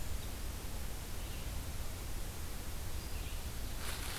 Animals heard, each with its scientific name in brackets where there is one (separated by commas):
Ovenbird (Seiurus aurocapilla)